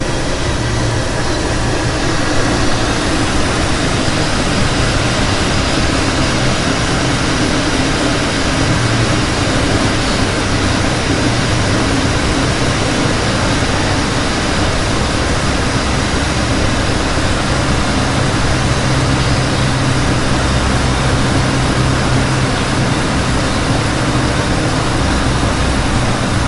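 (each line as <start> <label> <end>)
0.0 A loud white noise sounds. 26.5
0.0 A low-pitched rumbling sound. 26.5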